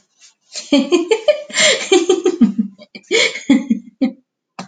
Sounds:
Laughter